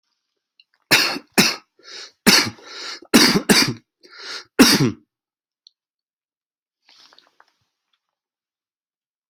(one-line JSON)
{"expert_labels": [{"quality": "good", "cough_type": "wet", "dyspnea": false, "wheezing": false, "stridor": false, "choking": false, "congestion": false, "nothing": true, "diagnosis": "healthy cough", "severity": "pseudocough/healthy cough"}], "age": 40, "gender": "male", "respiratory_condition": false, "fever_muscle_pain": true, "status": "symptomatic"}